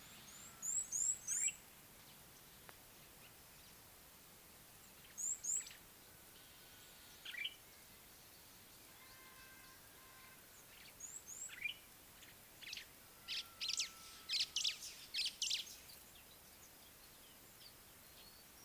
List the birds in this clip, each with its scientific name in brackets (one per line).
Red-cheeked Cordonbleu (Uraeginthus bengalus)
Common Bulbul (Pycnonotus barbatus)
White-browed Sparrow-Weaver (Plocepasser mahali)